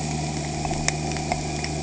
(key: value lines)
label: anthrophony, boat engine
recorder: HydroMoth